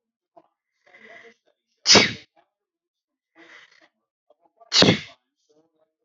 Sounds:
Sneeze